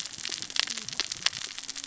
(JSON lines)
{"label": "biophony, cascading saw", "recorder": "SoundTrap 600 or HydroMoth"}